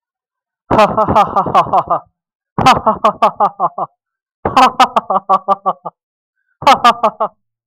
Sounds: Laughter